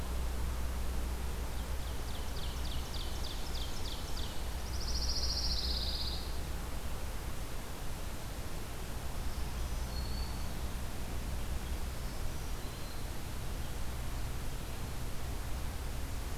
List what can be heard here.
Ovenbird, Pine Warbler, Black-throated Green Warbler